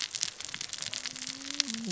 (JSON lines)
{"label": "biophony, cascading saw", "recorder": "SoundTrap 600 or HydroMoth"}